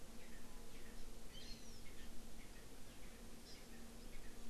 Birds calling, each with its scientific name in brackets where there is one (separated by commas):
Hawaii Amakihi (Chlorodrepanis virens), Erckel's Francolin (Pternistis erckelii)